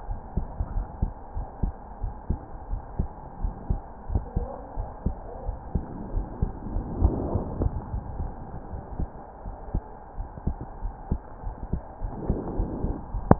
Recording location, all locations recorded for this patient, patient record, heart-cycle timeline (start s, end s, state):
pulmonary valve (PV)
aortic valve (AV)+pulmonary valve (PV)+tricuspid valve (TV)+mitral valve (MV)
#Age: Child
#Sex: Female
#Height: 125.0 cm
#Weight: 23.0 kg
#Pregnancy status: False
#Murmur: Absent
#Murmur locations: nan
#Most audible location: nan
#Systolic murmur timing: nan
#Systolic murmur shape: nan
#Systolic murmur grading: nan
#Systolic murmur pitch: nan
#Systolic murmur quality: nan
#Diastolic murmur timing: nan
#Diastolic murmur shape: nan
#Diastolic murmur grading: nan
#Diastolic murmur pitch: nan
#Diastolic murmur quality: nan
#Outcome: Abnormal
#Campaign: 2015 screening campaign
0.00	0.72	unannotated
0.72	0.88	S1
0.88	1.00	systole
1.00	1.12	S2
1.12	1.34	diastole
1.34	1.46	S1
1.46	1.62	systole
1.62	1.76	S2
1.76	2.02	diastole
2.02	2.14	S1
2.14	2.28	systole
2.28	2.40	S2
2.40	2.70	diastole
2.70	2.82	S1
2.82	2.98	systole
2.98	3.12	S2
3.12	3.40	diastole
3.40	3.54	S1
3.54	3.68	systole
3.68	3.82	S2
3.82	4.10	diastole
4.10	4.22	S1
4.22	4.35	systole
4.35	4.46	S2
4.46	4.75	diastole
4.75	4.90	S1
4.90	5.02	systole
5.02	5.18	S2
5.18	5.46	diastole
5.46	5.58	S1
5.58	5.74	systole
5.74	5.84	S2
5.84	6.10	diastole
6.10	6.26	S1
6.26	6.40	systole
6.40	6.52	S2
6.52	6.72	diastole
6.72	6.86	S1
6.86	6.98	systole
6.98	7.12	S2
7.12	7.32	diastole
7.32	7.46	S1
7.46	7.56	systole
7.56	7.70	S2
7.70	7.92	diastole
7.92	8.04	S1
8.04	8.17	systole
8.17	8.34	S2
8.34	8.66	diastole
8.66	8.80	S1
8.80	8.97	systole
8.97	9.14	S2
9.14	9.43	diastole
9.43	9.54	S1
9.54	9.72	systole
9.72	9.86	S2
9.86	10.16	diastole
10.16	10.28	S1
10.28	10.44	systole
10.44	10.58	S2
10.58	10.80	diastole
10.80	10.94	S1
10.94	11.08	systole
11.08	11.22	S2
11.22	11.42	diastole
11.42	11.56	S1
11.56	11.70	systole
11.70	11.80	S2
11.80	11.98	diastole
11.98	12.12	S1
12.12	12.24	systole
12.24	12.36	S2
12.36	12.56	diastole
12.56	12.72	S1
12.72	12.82	systole
12.82	12.98	S2
12.98	13.39	unannotated